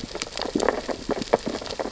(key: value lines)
label: biophony, sea urchins (Echinidae)
recorder: SoundTrap 600 or HydroMoth